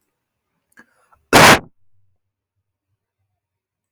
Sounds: Cough